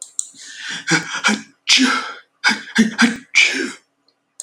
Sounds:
Sneeze